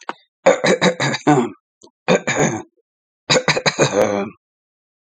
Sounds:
Throat clearing